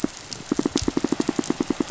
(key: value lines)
label: biophony, pulse
recorder: SoundTrap 500